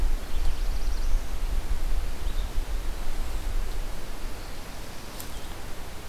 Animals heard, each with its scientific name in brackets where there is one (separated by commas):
Black-throated Blue Warbler (Setophaga caerulescens)